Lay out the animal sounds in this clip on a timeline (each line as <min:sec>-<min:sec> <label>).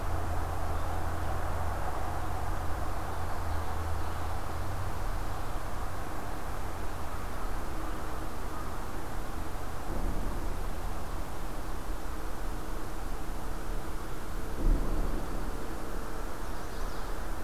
0:16.3-0:17.0 Chestnut-sided Warbler (Setophaga pensylvanica)